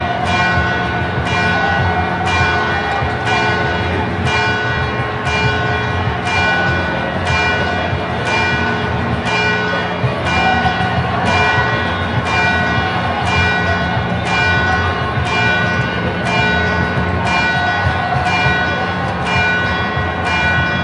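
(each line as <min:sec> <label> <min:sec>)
0:00.0 Church bells are ringing. 0:20.8
0:00.0 People are talking in the distance. 0:20.8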